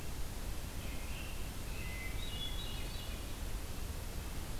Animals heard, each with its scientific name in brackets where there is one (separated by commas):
American Robin (Turdus migratorius), Hermit Thrush (Catharus guttatus)